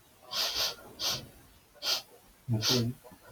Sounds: Sniff